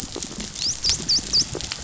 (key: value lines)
label: biophony, dolphin
recorder: SoundTrap 500